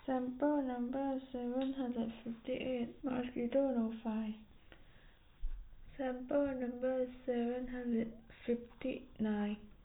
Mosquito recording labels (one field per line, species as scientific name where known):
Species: no mosquito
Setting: cup